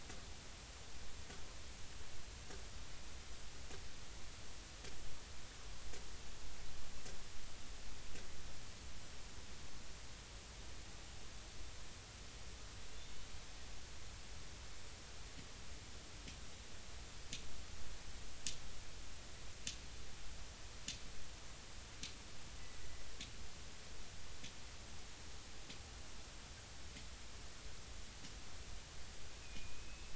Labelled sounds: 29.4	30.1	killer whale, Bigg's (transient), 2.4 to 2.7 kHz

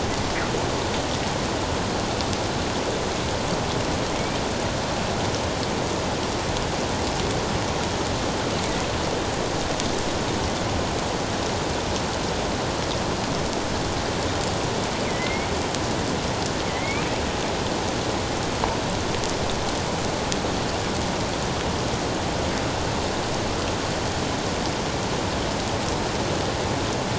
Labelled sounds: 15.0	15.5	killer whale, northern resident, A clan, AA subclan, A04 pod, 1.9 to 2.4 kHz
16.7	17.1	killer whale, northern resident, A clan, AA subclan, A04 pod, 1.9 to 2.7 kHz

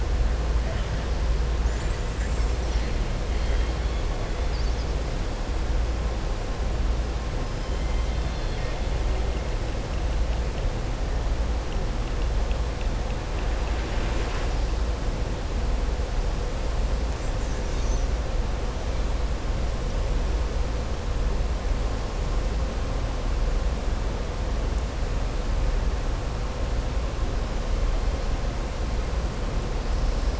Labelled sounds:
7.7	8.8	killer whale, southern resident, 1.3 to 4.3 kHz

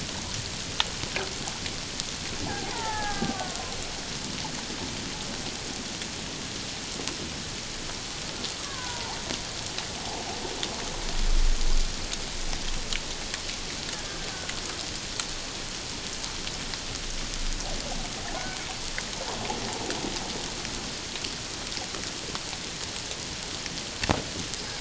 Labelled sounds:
2.4	3.7	killer whale, Bigg's (transient), 0.78 to 2.0 kHz
8.6	9.2	killer whale, Bigg's (transient), 0.78 to 1.7 kHz

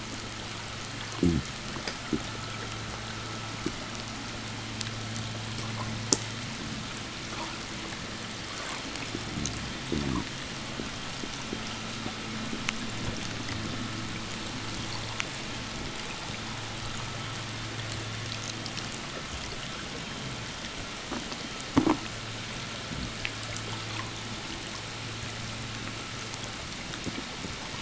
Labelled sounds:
0.8	1.6	fish, 0 to 0.84 kHz
8.2	9.0	abiotic sound, 0.56 to 5.2 kHz
9.1	10.4	fish, 0 to 0.85 kHz
11.6	18.5	vessel noise, 0 to 3.4 kHz

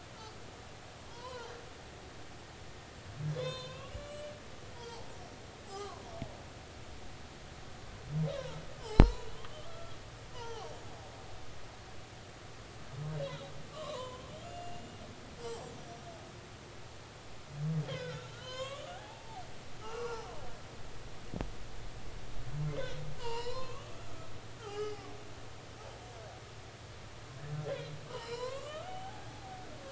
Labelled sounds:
1.1	1.5	humpback whale, 0.83 to 3.2 kHz
3.3	4.3	humpback whale, 0.96 to 7.1 kHz
4.7	5.1	humpback whale, 0.80 to 4.8 kHz
5.6	6.0	humpback whale, 0.80 to 1.3 kHz
8.3	10.0	humpback whale, 0.86 to 5.5 kHz
10.3	10.7	humpback whale, 0.80 to 6.2 kHz
13.7	15.7	humpback whale, 0.93 to 7.7 kHz
17.9	19.4	humpback whale, 0.80 to 7.1 kHz
19.8	20.3	humpback whale, 0.80 to 5.3 kHz
22.7	24.3	humpback whale, 0.86 to 5.4 kHz
24.6	25.0	humpback whale, 1.2 to 5.1 kHz
28.1	29.6	humpback whale, 0.80 to 4.5 kHz

